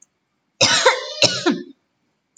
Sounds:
Cough